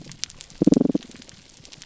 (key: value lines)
label: biophony, pulse
recorder: SoundTrap 300